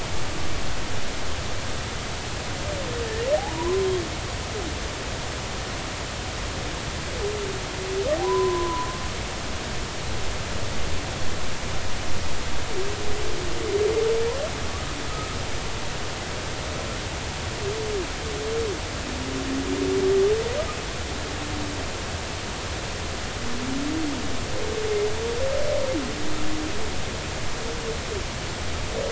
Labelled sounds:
3.3	3.9	humpback whale, 0.80 to 1.1 kHz
8.2	8.9	humpback whale, 0.93 to 1.1 kHz
15.1	15.4	humpback whale, 1.2 to 1.3 kHz

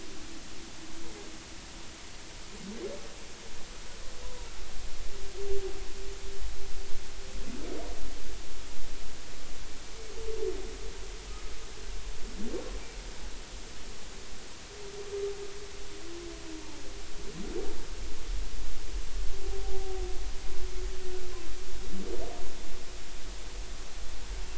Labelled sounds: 4.2	4.5	humpback whale, 0.86 to 1.0 kHz
19.6	20.0	humpback whale, 0.80 to 0.83 kHz

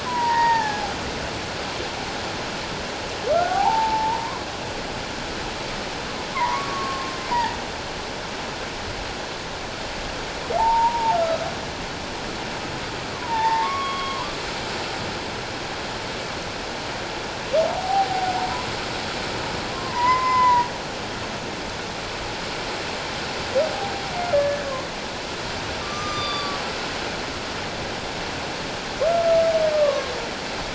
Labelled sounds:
0.0	0.9	humpback whale, 0.78 to 4.8 kHz
3.3	4.4	humpback whale, 0.78 to 1.6 kHz
6.3	7.6	humpback whale, 0.84 to 1.2 kHz
10.6	11.4	humpback whale, 0.78 to 1.4 kHz
13.1	14.3	humpback whale, 0.81 to 3.3 kHz
17.7	18.3	humpback whale, 0.78 to 0.94 kHz
19.7	20.7	humpback whale, 0.88 to 2.1 kHz
24.3	24.7	humpback whale, 1.6 to 1.8 kHz
25.8	26.6	humpback whale, 1.1 to 6.1 kHz
29.7	30.1	humpback whale, 1.0 to 1.2 kHz

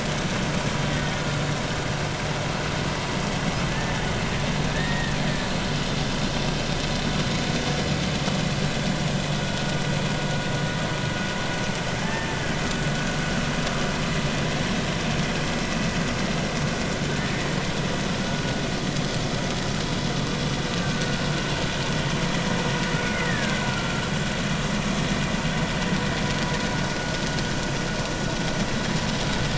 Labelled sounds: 3.7	4.0	killer whale, Bigg's (transient), 1.6 to 1.9 kHz
4.7	5.1	killer whale, Bigg's (transient), 1.7 to 1.9 kHz
12.0	12.6	killer whale, Bigg's (transient), 1.5 to 1.9 kHz
17.1	17.4	killer whale, Bigg's (transient), 1.7 to 1.9 kHz
20.8	21.1	killer whale, Bigg's (transient), 1.4 to 1.7 kHz
23.0	24.0	killer whale, Bigg's (transient), 1.3 to 2.2 kHz

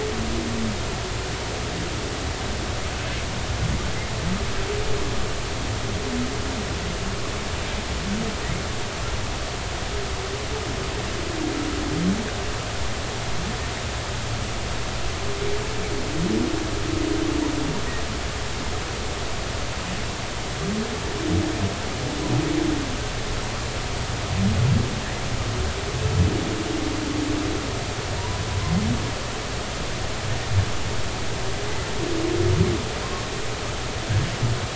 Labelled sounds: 28.2	28.4	humpback whale, 0.90 to 1.0 kHz
33.0	33.3	humpback whale, 1.0 to 1.2 kHz

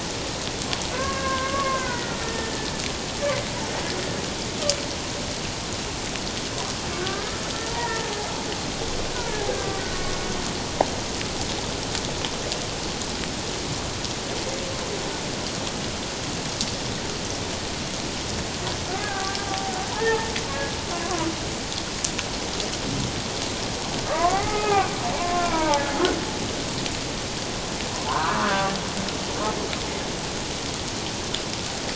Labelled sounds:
0.9	2.7	humpback whale, 0.91 to 2.1 kHz
7.0	8.0	humpback whale, 0.84 to 2.0 kHz
9.5	9.8	humpback whale, 1.1 to 1.7 kHz
19.1	20.3	humpback whale, 0.78 to 1.9 kHz
20.9	21.3	humpback whale, 0.91 to 1.2 kHz
24.1	25.8	humpback whale, 0.78 to 2.6 kHz
28.1	28.7	humpback whale, 0.84 to 1.7 kHz

